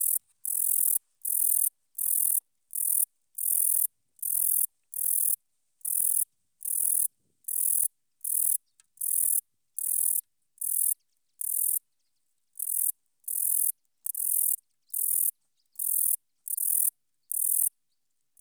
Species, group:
Eugaster guyoni
Orthoptera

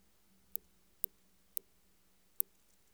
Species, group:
Tylopsis lilifolia
Orthoptera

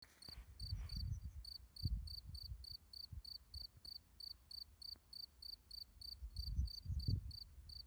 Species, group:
Gryllus campestris
Orthoptera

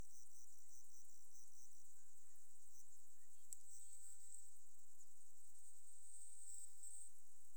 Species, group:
Eumodicogryllus bordigalensis
Orthoptera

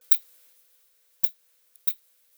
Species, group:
Leptophyes laticauda
Orthoptera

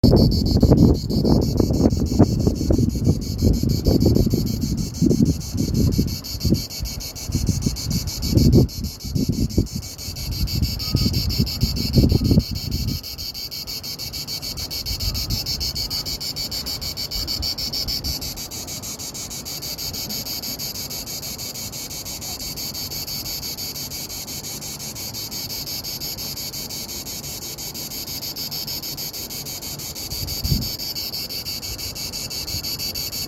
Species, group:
Cicada orni
Cicadidae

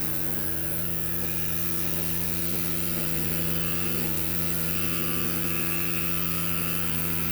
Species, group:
Roeseliana roeselii
Orthoptera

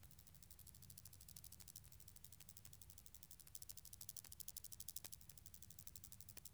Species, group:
Omocestus rufipes
Orthoptera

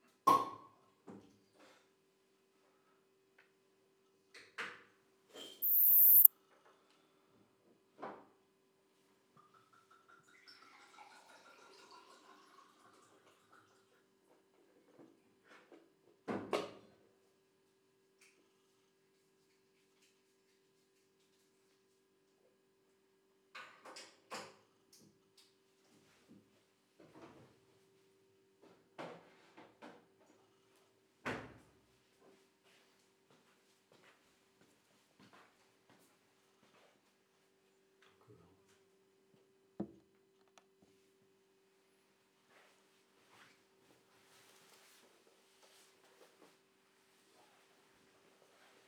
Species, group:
Poecilimon sanctipauli
Orthoptera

